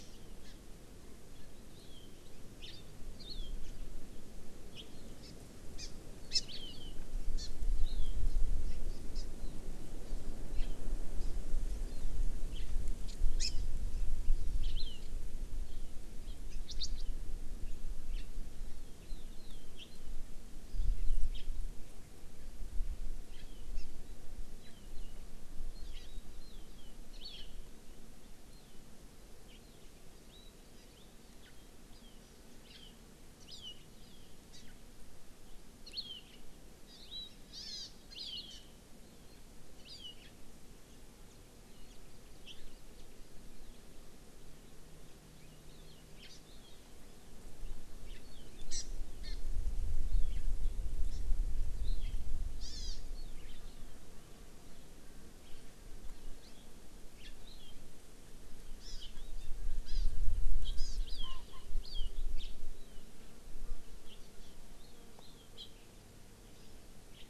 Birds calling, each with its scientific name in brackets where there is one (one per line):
Hawaii Amakihi (Chlorodrepanis virens)